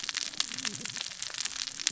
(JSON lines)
{"label": "biophony, cascading saw", "recorder": "SoundTrap 600 or HydroMoth"}